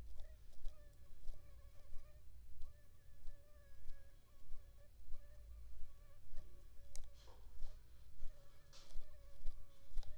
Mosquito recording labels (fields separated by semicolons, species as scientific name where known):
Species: Aedes aegypti; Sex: female; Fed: unfed; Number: one; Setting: cup